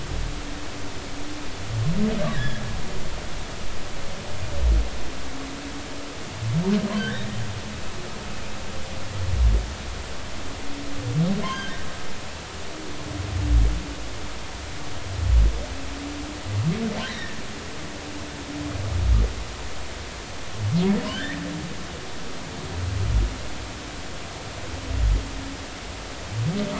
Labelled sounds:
2.3	2.6	humpback whale, 1.6 to 2.0 kHz
7.0	7.3	humpback whale, 1.5 to 2.0 kHz
11.4	11.8	humpback whale, 1.5 to 3.3 kHz
17.0	17.4	humpback whale, 1.5 to 2.0 kHz
21.1	21.4	humpback whale, 1.5 to 2.0 kHz

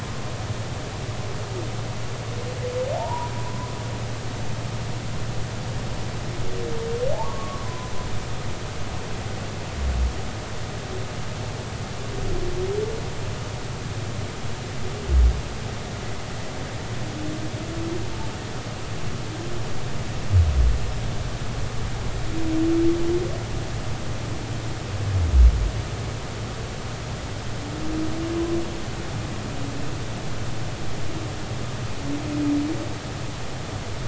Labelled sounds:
2.9	3.3	humpback whale, 0.80 to 1.0 kHz
7.1	7.9	humpback whale, 0.80 to 1.2 kHz

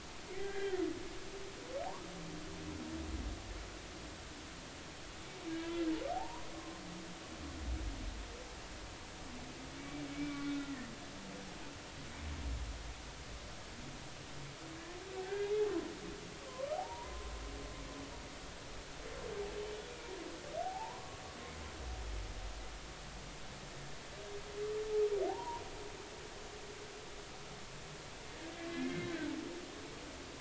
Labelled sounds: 0.3	0.8	humpback whale, 1.4 to 2.1 kHz
6.1	6.8	humpback whale, 0.80 to 1.1 kHz
9.8	10.5	humpback whale, 1.4 to 2.4 kHz
15.2	17.3	humpback whale, 0.80 to 2.6 kHz
20.6	21.2	humpback whale, 0.80 to 1.2 kHz
25.3	25.6	humpback whale, 0.80 to 1.1 kHz
28.7	29.3	humpback whale, 1.7 to 4.0 kHz

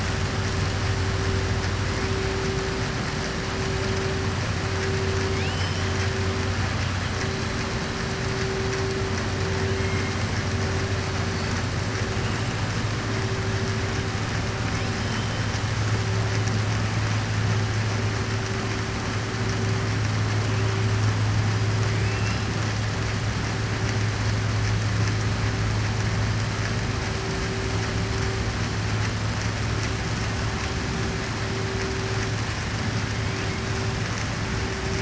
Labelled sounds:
5.3	6.1	killer whale, southern resident, 2.1 to 6.6 kHz
21.9	22.4	killer whale, southern resident, 2.2 to 3.3 kHz

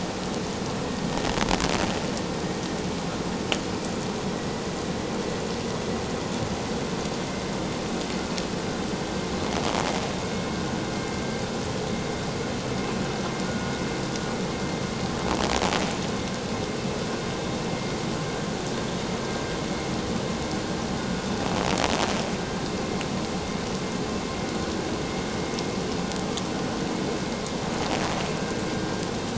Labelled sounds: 10.9	11.2	vessel noise, 2.1 to 2.2 kHz

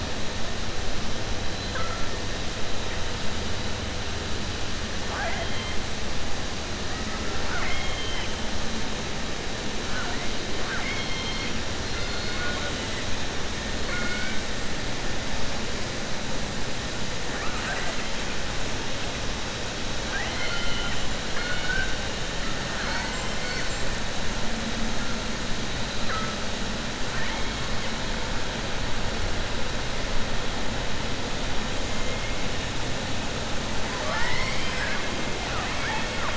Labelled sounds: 7.4	8.3	killer whale, southern resident, 0.71 to 3.3 kHz
10.6	11.5	killer whale, southern resident, 1.1 to 4.5 kHz
11.8	13.0	killer whale, southern resident, 0.57 to 5.1 kHz
13.8	14.4	killer whale, southern resident, 0.54 to 3.0 kHz
17.3	18.0	killer whale, southern resident, 0.65 to 2.8 kHz
20.0	21.0	killer whale, southern resident, 0.69 to 4.9 kHz
21.3	21.9	killer whale, southern resident, 1.1 to 4.4 kHz
33.9	35.1	killer whale, southern resident, 0.66 to 5.6 kHz
35.4	36.3	killer whale, southern resident, 0.72 to 3.3 kHz

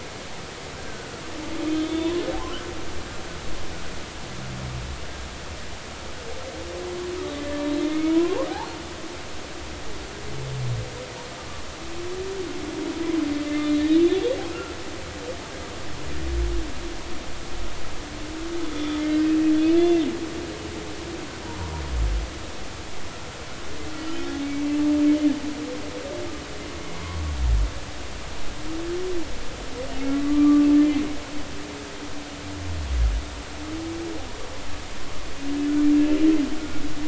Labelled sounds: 0.9	1.2	humpback whale, 1.3 to 1.6 kHz
1.7	2.1	humpback whale, 3.4 to 3.7 kHz
7.4	8.4	humpback whale, 0.93 to 2.3 kHz
13.5	13.9	humpback whale, 3.8 to 4.0 kHz
18.6	19.3	humpback whale, 1.7 to 3.6 kHz
19.8	20.1	humpback whale, 2.0 to 2.1 kHz
24.0	24.3	humpback whale, 2.9 to 3.1 kHz
24.6	24.9	humpback whale, 2.6 to 2.7 kHz
30.1	30.7	humpback whale, 1.1 to 1.3 kHz

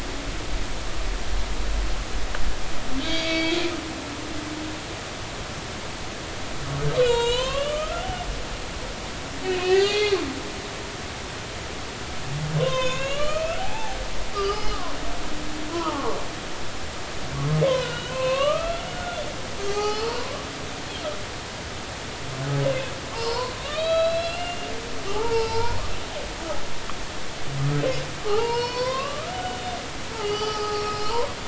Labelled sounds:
3.0	3.6	humpback whale, 2.2 to 3.4 kHz
7.0	8.8	humpback whale, 0.86 to 6.8 kHz
9.4	10.2	humpback whale, 1.8 to 4.6 kHz
12.6	14.0	humpback whale, 0.80 to 5.3 kHz
14.3	15.0	humpback whale, 0.93 to 5.2 kHz
15.7	16.2	humpback whale, 0.80 to 1.5 kHz
17.6	20.3	humpback whale, 0.80 to 5.2 kHz
23.1	25.8	humpback whale, 0.80 to 5.2 kHz
28.2	29.6	humpback whale, 0.80 to 5.8 kHz
30.2	31.3	humpback whale, 0.80 to 6.0 kHz

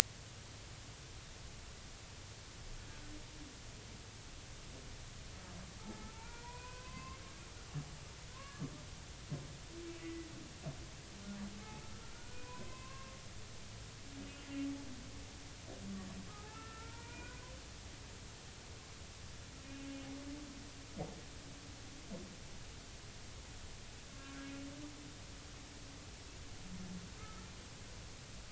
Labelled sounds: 5.8	7.2	humpback whale, 0.83 to 2.7 kHz
8.3	8.7	humpback whale, 0.99 to 1.8 kHz
10.0	10.3	humpback whale, 1.9 to 2.0 kHz
12.1	13.2	humpback whale, 0.93 to 2.7 kHz
16.3	17.5	humpback whale, 0.80 to 2.5 kHz
24.1	24.5	humpback whale, 1.1 to 1.4 kHz
27.2	27.5	humpback whale, 1.2 to 1.4 kHz

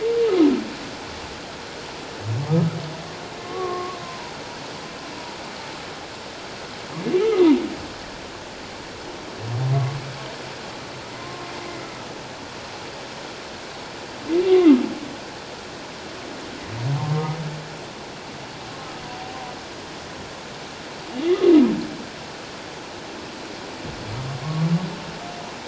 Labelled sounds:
3.4	4.3	humpback whale, 0.91 to 1.2 kHz
7.2	7.5	humpback whale, 1.1 to 1.4 kHz
11.1	11.5	humpback whale, 0.97 to 1.1 kHz
17.0	17.3	humpback whale, 0.88 to 1.1 kHz
24.4	24.7	humpback whale, 1.0 to 1.2 kHz

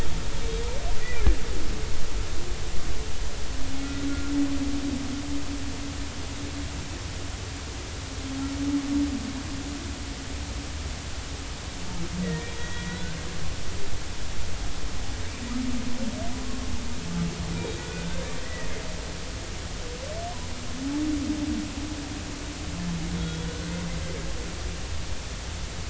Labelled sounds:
12.2	13.2	humpback whale, 1.4 to 3.4 kHz
17.6	18.7	humpback whale, 1.4 to 3.8 kHz
23.2	23.7	humpback whale, 1.4 to 3.4 kHz

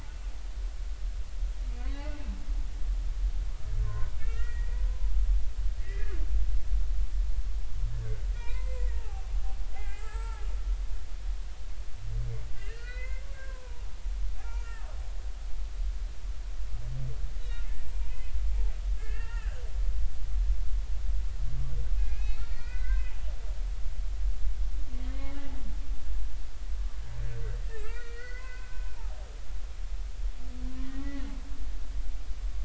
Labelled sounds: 1.8	2.1	humpback whale, 0.93 to 2.1 kHz
3.8	4.8	humpback whale, 0.93 to 2.9 kHz
5.8	6.1	humpback whale, 1.8 to 2.1 kHz
8.3	9.3	humpback whale, 0.80 to 2.6 kHz
9.7	10.5	humpback whale, 0.80 to 7.8 kHz
12.5	13.8	humpback whale, 0.86 to 4.5 kHz
14.4	14.9	humpback whale, 1.1 to 2.9 kHz
17.4	17.6	humpback whale, 2.7 to 4.0 kHz
18.1	18.3	humpback whale, 2.4 to 2.6 kHz
19.0	19.6	humpback whale, 0.86 to 2.8 kHz
22.0	23.1	humpback whale, 0.80 to 4.5 kHz
25.1	25.4	humpback whale, 0.96 to 2.2 kHz
27.7	28.8	humpback whale, 0.96 to 4.6 kHz
30.7	31.3	humpback whale, 1.8 to 3.0 kHz

